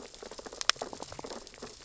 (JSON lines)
{"label": "biophony, sea urchins (Echinidae)", "recorder": "SoundTrap 600 or HydroMoth"}